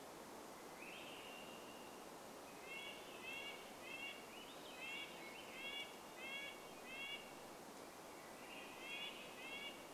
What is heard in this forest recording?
Varied Thrush song, Swainson's Thrush song, Red-breasted Nuthatch song, unidentified sound